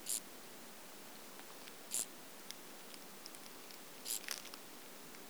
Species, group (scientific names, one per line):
Chorthippus brunneus
Orthoptera